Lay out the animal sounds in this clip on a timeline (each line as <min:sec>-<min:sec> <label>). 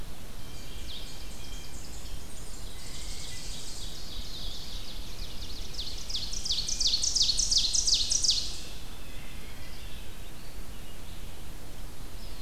0:00.0-0:01.1 Blue-headed Vireo (Vireo solitarius)
0:00.0-0:12.4 Red-eyed Vireo (Vireo olivaceus)
0:00.3-0:02.0 Blue Jay (Cyanocitta cristata)
0:00.6-0:03.9 Tennessee Warbler (Leiothlypis peregrina)
0:02.7-0:03.5 Blue Jay (Cyanocitta cristata)
0:02.7-0:08.8 Ovenbird (Seiurus aurocapilla)